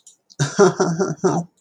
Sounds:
Laughter